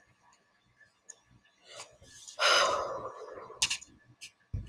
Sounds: Sigh